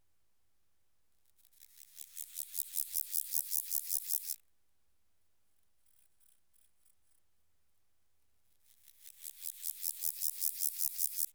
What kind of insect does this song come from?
orthopteran